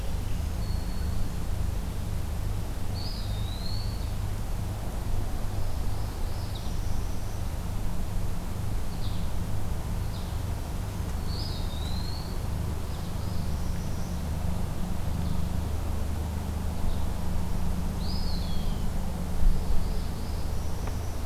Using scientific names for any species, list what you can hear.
Setophaga virens, Contopus virens, Setophaga americana, Vireo olivaceus